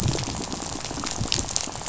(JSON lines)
{"label": "biophony, rattle", "recorder": "SoundTrap 500"}